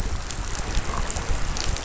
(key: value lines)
label: biophony
recorder: SoundTrap 500